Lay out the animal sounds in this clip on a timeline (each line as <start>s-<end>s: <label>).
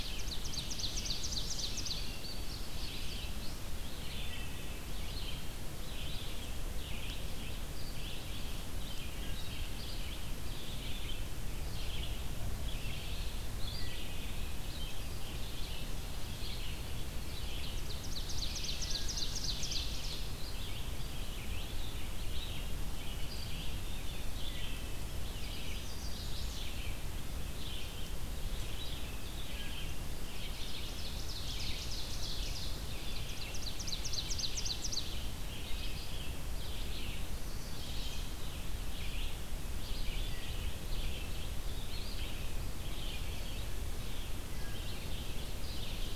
0.0s-2.0s: Ovenbird (Seiurus aurocapilla)
0.0s-46.2s: Red-eyed Vireo (Vireo olivaceus)
1.6s-3.6s: Indigo Bunting (Passerina cyanea)
17.7s-19.9s: Ovenbird (Seiurus aurocapilla)
25.6s-26.7s: Chestnut-sided Warbler (Setophaga pensylvanica)
30.2s-35.2s: Ovenbird (Seiurus aurocapilla)
37.2s-38.3s: Chestnut-sided Warbler (Setophaga pensylvanica)
40.0s-40.8s: Wood Thrush (Hylocichla mustelina)
44.2s-45.0s: Wood Thrush (Hylocichla mustelina)